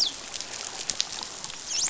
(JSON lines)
{"label": "biophony, dolphin", "recorder": "SoundTrap 500"}